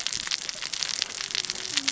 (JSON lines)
{"label": "biophony, cascading saw", "recorder": "SoundTrap 600 or HydroMoth"}